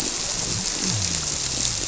{"label": "biophony", "recorder": "SoundTrap 300"}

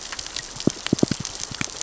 {"label": "biophony, knock", "recorder": "SoundTrap 600 or HydroMoth"}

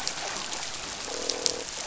{"label": "biophony, croak", "recorder": "SoundTrap 500"}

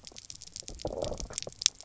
{"label": "biophony, knock croak", "recorder": "SoundTrap 300"}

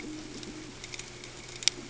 {"label": "ambient", "recorder": "HydroMoth"}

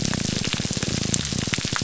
{"label": "biophony, grouper groan", "recorder": "SoundTrap 300"}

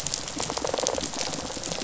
{"label": "biophony, rattle response", "recorder": "SoundTrap 500"}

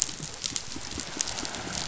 {"label": "biophony", "recorder": "SoundTrap 500"}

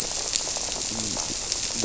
{"label": "biophony", "recorder": "SoundTrap 300"}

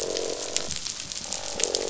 {"label": "biophony, croak", "recorder": "SoundTrap 500"}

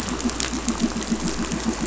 {"label": "anthrophony, boat engine", "recorder": "SoundTrap 500"}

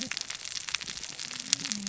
{"label": "biophony, cascading saw", "recorder": "SoundTrap 600 or HydroMoth"}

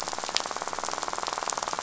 {"label": "biophony, rattle", "recorder": "SoundTrap 500"}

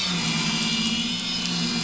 {"label": "anthrophony, boat engine", "recorder": "SoundTrap 500"}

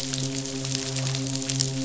{"label": "biophony, midshipman", "recorder": "SoundTrap 500"}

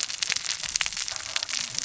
{"label": "biophony, cascading saw", "recorder": "SoundTrap 600 or HydroMoth"}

